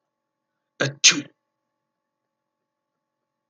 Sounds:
Sneeze